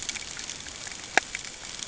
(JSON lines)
{"label": "ambient", "recorder": "HydroMoth"}